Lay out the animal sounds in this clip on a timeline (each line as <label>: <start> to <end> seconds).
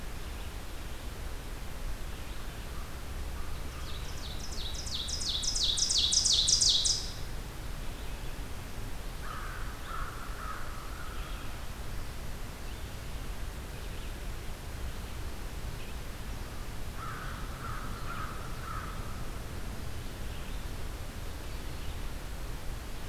American Crow (Corvus brachyrhynchos): 2.3 to 4.1 seconds
Ovenbird (Seiurus aurocapilla): 3.3 to 7.4 seconds
American Crow (Corvus brachyrhynchos): 9.0 to 11.7 seconds
American Crow (Corvus brachyrhynchos): 16.8 to 19.5 seconds